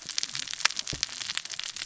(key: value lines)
label: biophony, cascading saw
recorder: SoundTrap 600 or HydroMoth